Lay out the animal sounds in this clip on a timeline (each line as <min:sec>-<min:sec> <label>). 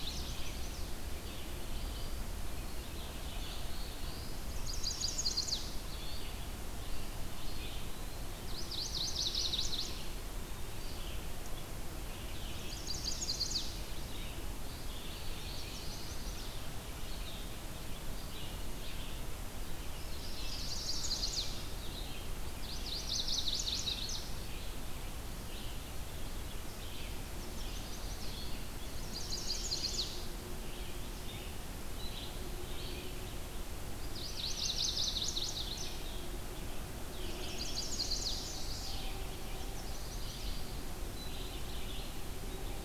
0:00.0-0:01.0 Chestnut-sided Warbler (Setophaga pensylvanica)
0:00.0-0:15.5 Red-eyed Vireo (Vireo olivaceus)
0:03.3-0:04.4 Black-throated Blue Warbler (Setophaga caerulescens)
0:04.3-0:05.9 Chestnut-sided Warbler (Setophaga pensylvanica)
0:07.3-0:08.4 Eastern Wood-Pewee (Contopus virens)
0:08.2-0:10.3 Chestnut-sided Warbler (Setophaga pensylvanica)
0:12.4-0:13.9 Chestnut-sided Warbler (Setophaga pensylvanica)
0:14.6-0:16.2 Black-throated Blue Warbler (Setophaga caerulescens)
0:15.4-0:16.6 Chestnut-sided Warbler (Setophaga pensylvanica)
0:16.8-0:42.8 Red-eyed Vireo (Vireo olivaceus)
0:20.3-0:21.6 Chestnut-sided Warbler (Setophaga pensylvanica)
0:22.5-0:24.4 Chestnut-sided Warbler (Setophaga pensylvanica)
0:27.1-0:28.4 Chestnut-sided Warbler (Setophaga pensylvanica)
0:28.8-0:30.3 Chestnut-sided Warbler (Setophaga pensylvanica)
0:34.0-0:35.9 Chestnut-sided Warbler (Setophaga pensylvanica)
0:37.1-0:38.9 Chestnut-sided Warbler (Setophaga pensylvanica)
0:39.4-0:40.5 Chestnut-sided Warbler (Setophaga pensylvanica)